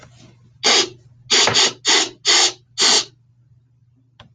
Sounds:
Sniff